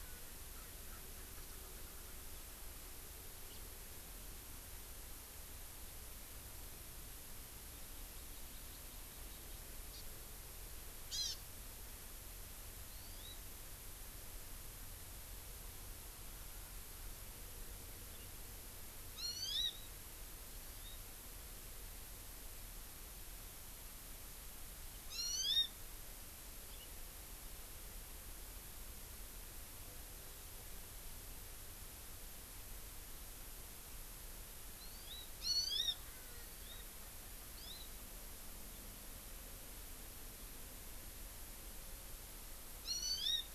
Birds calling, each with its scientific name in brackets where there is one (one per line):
Hawaii Amakihi (Chlorodrepanis virens)
Erckel's Francolin (Pternistis erckelii)